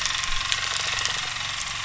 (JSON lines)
{"label": "anthrophony, boat engine", "recorder": "SoundTrap 300"}